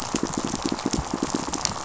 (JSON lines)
{"label": "biophony, pulse", "recorder": "SoundTrap 500"}